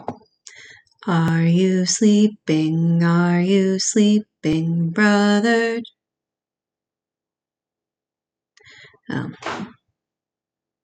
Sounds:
Sigh